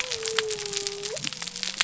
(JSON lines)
{"label": "biophony", "recorder": "SoundTrap 300"}